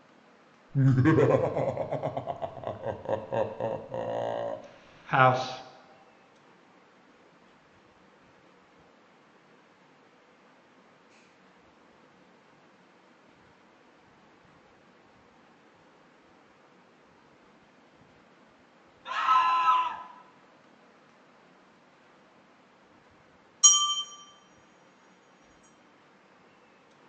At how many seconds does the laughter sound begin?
0.7 s